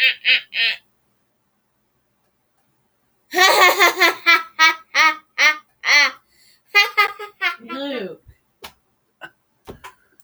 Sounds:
Laughter